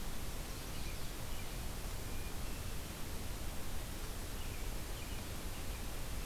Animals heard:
forest ambience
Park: Marsh-Billings-Rockefeller National Historical Park